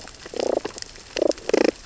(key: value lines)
label: biophony, damselfish
recorder: SoundTrap 600 or HydroMoth